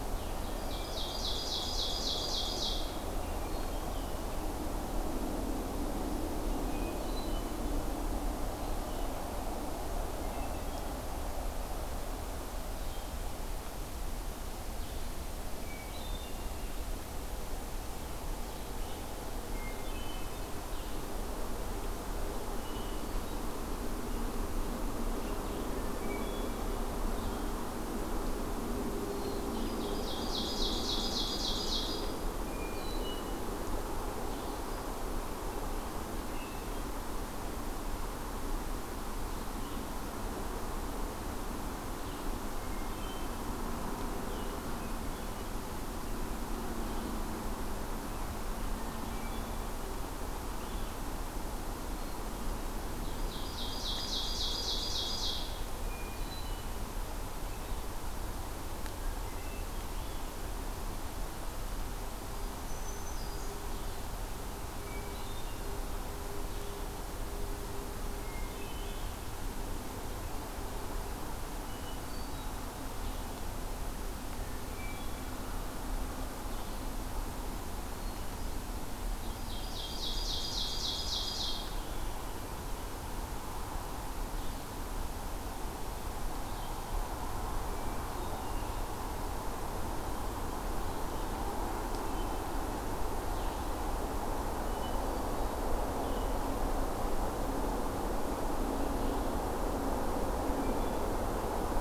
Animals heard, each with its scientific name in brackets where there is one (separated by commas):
Red-eyed Vireo (Vireo olivaceus), Hermit Thrush (Catharus guttatus), Ovenbird (Seiurus aurocapilla), Black-throated Green Warbler (Setophaga virens)